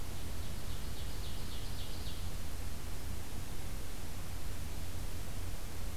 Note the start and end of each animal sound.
[0.00, 2.22] Ovenbird (Seiurus aurocapilla)

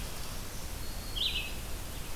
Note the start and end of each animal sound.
[0.00, 2.16] Red-eyed Vireo (Vireo olivaceus)
[0.23, 1.62] Black-throated Green Warbler (Setophaga virens)

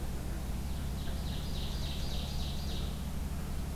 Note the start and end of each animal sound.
[0.69, 2.98] Ovenbird (Seiurus aurocapilla)

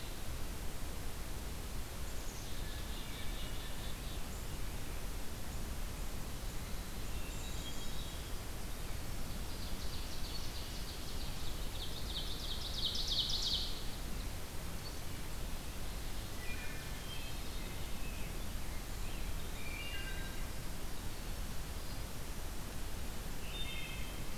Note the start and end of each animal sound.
[1.83, 4.29] Black-capped Chickadee (Poecile atricapillus)
[2.50, 3.76] Hermit Thrush (Catharus guttatus)
[6.96, 8.52] Hermit Thrush (Catharus guttatus)
[7.16, 7.95] Black-capped Chickadee (Poecile atricapillus)
[9.02, 13.79] Ovenbird (Seiurus aurocapilla)
[15.58, 17.64] Ovenbird (Seiurus aurocapilla)
[16.38, 16.83] Wood Thrush (Hylocichla mustelina)
[16.91, 18.23] Hermit Thrush (Catharus guttatus)
[18.70, 22.18] Winter Wren (Troglodytes hiemalis)
[19.51, 20.41] Wood Thrush (Hylocichla mustelina)
[23.38, 24.27] Wood Thrush (Hylocichla mustelina)

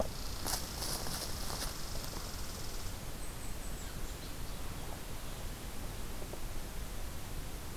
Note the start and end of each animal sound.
[0.00, 4.20] Red Squirrel (Tamiasciurus hudsonicus)

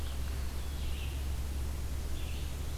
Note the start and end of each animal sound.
[0.00, 2.77] Red-eyed Vireo (Vireo olivaceus)

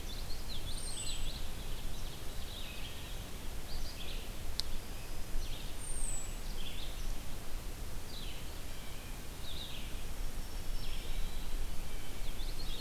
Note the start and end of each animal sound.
[0.00, 1.60] Common Yellowthroat (Geothlypis trichas)
[0.00, 12.81] Red-eyed Vireo (Vireo olivaceus)
[0.65, 1.30] American Robin (Turdus migratorius)
[5.70, 6.38] American Robin (Turdus migratorius)
[8.44, 9.28] Blue Jay (Cyanocitta cristata)
[9.76, 11.12] Black-throated Green Warbler (Setophaga virens)
[10.44, 11.64] Eastern Wood-Pewee (Contopus virens)
[11.75, 12.34] Blue Jay (Cyanocitta cristata)
[11.90, 12.81] Common Yellowthroat (Geothlypis trichas)

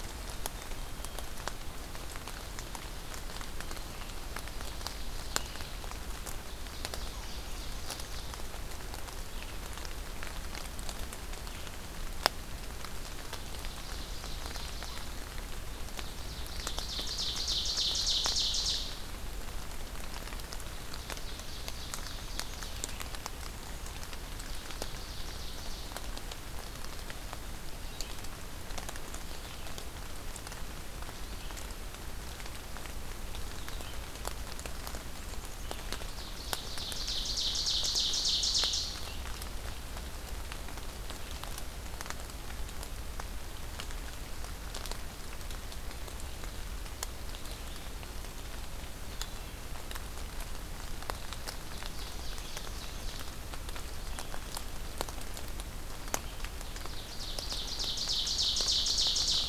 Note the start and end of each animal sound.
[0.08, 1.23] Black-capped Chickadee (Poecile atricapillus)
[4.34, 5.81] Ovenbird (Seiurus aurocapilla)
[6.07, 8.35] Ovenbird (Seiurus aurocapilla)
[12.73, 15.23] Ovenbird (Seiurus aurocapilla)
[15.80, 19.09] Ovenbird (Seiurus aurocapilla)
[20.86, 22.97] Ovenbird (Seiurus aurocapilla)
[24.30, 26.05] Ovenbird (Seiurus aurocapilla)
[27.75, 59.49] Red-eyed Vireo (Vireo olivaceus)
[35.02, 35.67] Black-capped Chickadee (Poecile atricapillus)
[35.58, 38.92] Ovenbird (Seiurus aurocapilla)
[47.84, 48.75] Black-capped Chickadee (Poecile atricapillus)
[51.37, 53.44] Ovenbird (Seiurus aurocapilla)
[56.61, 59.49] Ovenbird (Seiurus aurocapilla)

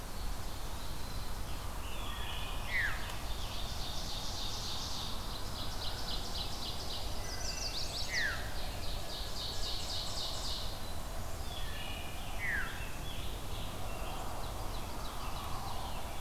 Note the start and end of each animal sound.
[1.89, 2.69] Wood Thrush (Hylocichla mustelina)
[2.54, 3.07] Veery (Catharus fuscescens)
[2.85, 7.20] Ovenbird (Seiurus aurocapilla)
[7.01, 8.29] Blackburnian Warbler (Setophaga fusca)
[7.03, 8.39] Chestnut-sided Warbler (Setophaga pensylvanica)
[7.13, 7.76] Wood Thrush (Hylocichla mustelina)
[7.90, 8.55] Veery (Catharus fuscescens)
[8.32, 10.95] Ovenbird (Seiurus aurocapilla)
[11.34, 12.24] Wood Thrush (Hylocichla mustelina)
[11.92, 14.37] Scarlet Tanager (Piranga olivacea)
[11.93, 13.17] Veery (Catharus fuscescens)
[14.00, 15.90] Ovenbird (Seiurus aurocapilla)
[14.81, 16.13] Scarlet Tanager (Piranga olivacea)

